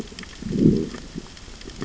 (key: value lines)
label: biophony, growl
recorder: SoundTrap 600 or HydroMoth